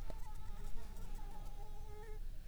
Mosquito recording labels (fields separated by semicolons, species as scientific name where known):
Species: Anopheles arabiensis; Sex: female; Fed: unfed; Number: one; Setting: cup